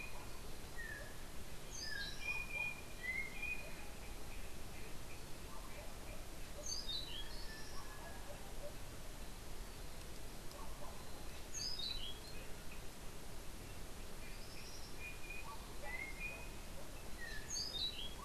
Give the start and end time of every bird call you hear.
0.0s-3.9s: Yellow-backed Oriole (Icterus chrysater)
6.4s-7.4s: Orange-billed Nightingale-Thrush (Catharus aurantiirostris)
11.2s-12.5s: Orange-billed Nightingale-Thrush (Catharus aurantiirostris)
14.1s-15.0s: Tropical Kingbird (Tyrannus melancholicus)
14.3s-17.7s: Yellow-backed Oriole (Icterus chrysater)
17.3s-18.2s: Orange-billed Nightingale-Thrush (Catharus aurantiirostris)

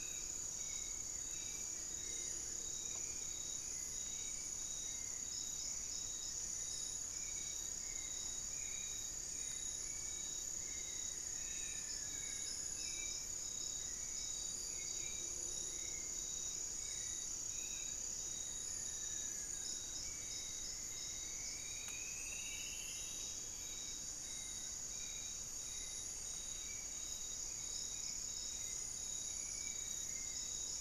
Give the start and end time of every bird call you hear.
0.0s-13.0s: Amazonian Barred-Woodcreeper (Dendrocolaptes certhia)
0.0s-30.8s: Hauxwell's Thrush (Turdus hauxwelli)
7.4s-10.6s: Black-faced Antthrush (Formicarius analis)
18.2s-20.2s: Amazonian Barred-Woodcreeper (Dendrocolaptes certhia)
20.5s-23.4s: Striped Woodcreeper (Xiphorhynchus obsoletus)

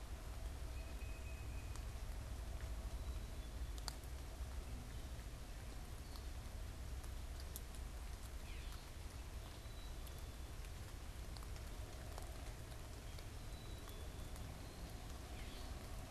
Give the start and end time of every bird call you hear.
0.6s-1.9s: Tufted Titmouse (Baeolophus bicolor)
2.9s-3.8s: Black-capped Chickadee (Poecile atricapillus)
9.4s-10.4s: Black-capped Chickadee (Poecile atricapillus)
13.3s-14.4s: Black-capped Chickadee (Poecile atricapillus)
15.0s-16.0s: Gray Catbird (Dumetella carolinensis)

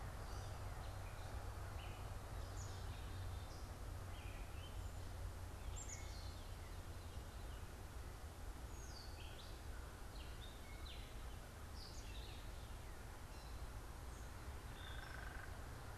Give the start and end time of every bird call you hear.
0.0s-16.0s: Gray Catbird (Dumetella carolinensis)
2.2s-7.1s: Black-capped Chickadee (Poecile atricapillus)
14.4s-15.7s: unidentified bird

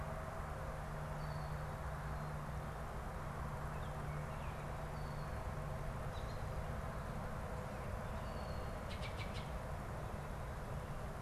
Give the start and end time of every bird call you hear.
3.5s-4.8s: Baltimore Oriole (Icterus galbula)
8.8s-9.7s: Baltimore Oriole (Icterus galbula)

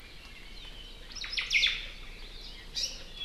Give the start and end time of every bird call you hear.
1.0s-1.9s: Omao (Myadestes obscurus)
2.7s-3.0s: Hawaii Amakihi (Chlorodrepanis virens)

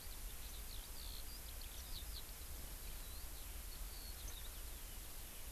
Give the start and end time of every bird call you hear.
0.0s-5.0s: Eurasian Skylark (Alauda arvensis)

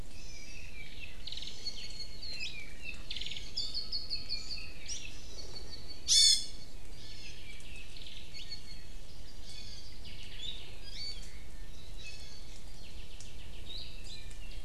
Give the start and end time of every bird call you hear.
0.0s-0.7s: Hawaii Amakihi (Chlorodrepanis virens)
0.1s-6.1s: Apapane (Himatione sanguinea)
1.2s-1.8s: Hawaii Amakihi (Chlorodrepanis virens)
2.3s-2.6s: Hawaii Creeper (Loxops mana)
3.0s-3.6s: Hawaii Amakihi (Chlorodrepanis virens)
4.8s-5.1s: Hawaii Creeper (Loxops mana)
6.0s-7.5s: Iiwi (Drepanis coccinea)
7.2s-9.1s: Apapane (Himatione sanguinea)
9.4s-9.9s: Iiwi (Drepanis coccinea)
10.0s-10.7s: Apapane (Himatione sanguinea)
10.7s-11.4s: Iiwi (Drepanis coccinea)
11.2s-11.6s: Omao (Myadestes obscurus)
11.9s-12.5s: Iiwi (Drepanis coccinea)
12.7s-14.0s: Apapane (Himatione sanguinea)
13.6s-14.1s: Hawaii Creeper (Loxops mana)

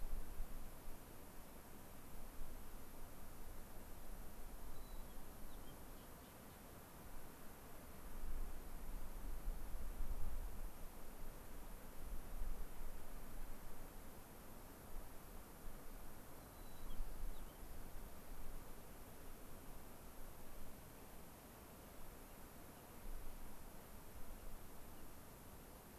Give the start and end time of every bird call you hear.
4.7s-5.7s: White-crowned Sparrow (Zonotrichia leucophrys)
16.4s-18.0s: White-crowned Sparrow (Zonotrichia leucophrys)

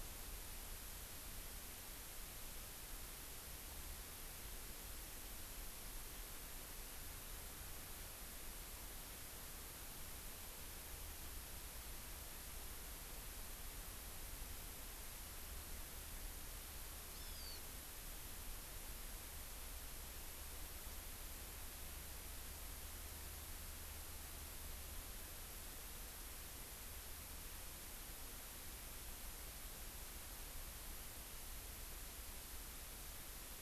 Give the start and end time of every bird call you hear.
17.1s-17.6s: Hawaii Amakihi (Chlorodrepanis virens)

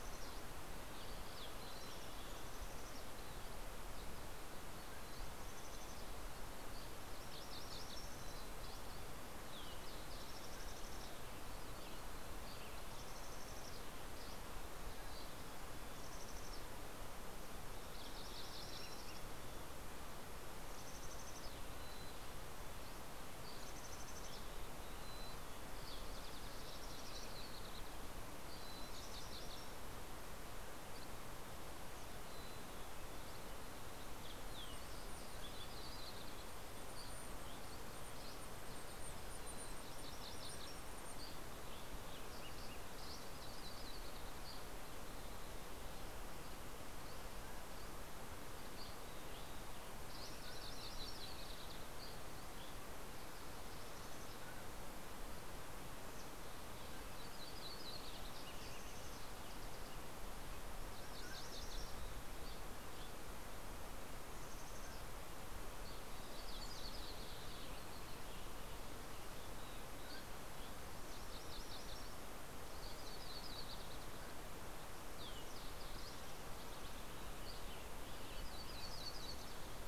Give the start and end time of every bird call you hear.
0.0s-26.8s: Mountain Chickadee (Poecile gambeli)
3.7s-5.4s: Dusky Flycatcher (Empidonax oberholseri)
4.3s-6.1s: Mountain Quail (Oreortyx pictus)
5.6s-8.9s: MacGillivray's Warbler (Geothlypis tolmiei)
6.3s-7.2s: Dusky Flycatcher (Empidonax oberholseri)
10.1s-11.2s: Mountain Quail (Oreortyx pictus)
12.0s-13.0s: Dusky Flycatcher (Empidonax oberholseri)
13.7s-15.6s: Dusky Flycatcher (Empidonax oberholseri)
14.4s-16.0s: Mountain Quail (Oreortyx pictus)
17.1s-20.0s: MacGillivray's Warbler (Geothlypis tolmiei)
22.7s-25.1s: Dusky Flycatcher (Empidonax oberholseri)
26.1s-28.2s: Yellow-rumped Warbler (Setophaga coronata)
27.9s-30.9s: MacGillivray's Warbler (Geothlypis tolmiei)
28.3s-30.1s: Mountain Chickadee (Poecile gambeli)
30.6s-31.5s: Dusky Flycatcher (Empidonax oberholseri)
31.8s-33.6s: Mountain Chickadee (Poecile gambeli)
33.2s-34.0s: Dusky Flycatcher (Empidonax oberholseri)
34.5s-41.5s: Mountain Chickadee (Poecile gambeli)
35.1s-36.0s: Mountain Quail (Oreortyx pictus)
37.5s-38.9s: Dusky Flycatcher (Empidonax oberholseri)
39.7s-41.0s: MacGillivray's Warbler (Geothlypis tolmiei)
40.2s-41.1s: Mountain Quail (Oreortyx pictus)
41.2s-42.2s: Dusky Flycatcher (Empidonax oberholseri)
44.5s-45.6s: Dusky Flycatcher (Empidonax oberholseri)
46.5s-49.6s: Dusky Flycatcher (Empidonax oberholseri)
47.2s-48.0s: Mountain Quail (Oreortyx pictus)
50.0s-52.1s: MacGillivray's Warbler (Geothlypis tolmiei)
50.3s-51.0s: Mountain Quail (Oreortyx pictus)
51.9s-53.1s: Dusky Flycatcher (Empidonax oberholseri)
54.4s-54.9s: Mountain Quail (Oreortyx pictus)
56.7s-57.4s: Mountain Quail (Oreortyx pictus)
58.5s-59.6s: Mountain Chickadee (Poecile gambeli)
60.8s-62.2s: MacGillivray's Warbler (Geothlypis tolmiei)
61.0s-61.6s: Mountain Quail (Oreortyx pictus)
62.3s-63.6s: Dusky Flycatcher (Empidonax oberholseri)
64.2s-65.6s: Mountain Chickadee (Poecile gambeli)
66.0s-68.2s: Yellow-rumped Warbler (Setophaga coronata)
69.8s-70.7s: Mountain Quail (Oreortyx pictus)
69.8s-70.9s: Dusky Flycatcher (Empidonax oberholseri)
71.0s-72.5s: MacGillivray's Warbler (Geothlypis tolmiei)
72.7s-74.8s: Yellow-rumped Warbler (Setophaga coronata)
74.0s-74.4s: Mountain Quail (Oreortyx pictus)
77.4s-78.2s: Dusky Flycatcher (Empidonax oberholseri)
78.3s-79.9s: Yellow-rumped Warbler (Setophaga coronata)

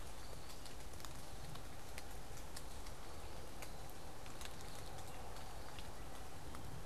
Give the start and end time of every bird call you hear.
0.0s-6.9s: unidentified bird

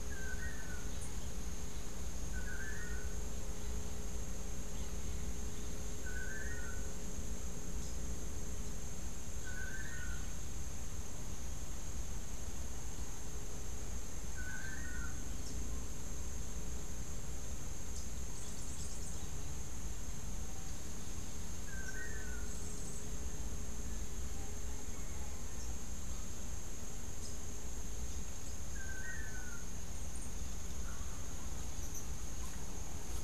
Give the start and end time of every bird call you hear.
0.0s-3.2s: Long-tailed Manakin (Chiroxiphia linearis)
6.0s-10.2s: Long-tailed Manakin (Chiroxiphia linearis)
14.2s-15.2s: Long-tailed Manakin (Chiroxiphia linearis)
15.3s-19.4s: Rufous-capped Warbler (Basileuterus rufifrons)
21.5s-22.6s: Long-tailed Manakin (Chiroxiphia linearis)
22.3s-23.3s: Yellow-faced Grassquit (Tiaris olivaceus)
28.7s-29.6s: Long-tailed Manakin (Chiroxiphia linearis)

